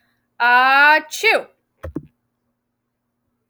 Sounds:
Sneeze